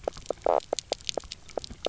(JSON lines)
{"label": "biophony, knock croak", "recorder": "SoundTrap 300"}